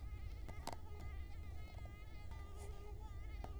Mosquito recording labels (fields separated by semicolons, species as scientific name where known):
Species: Culex quinquefasciatus; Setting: cup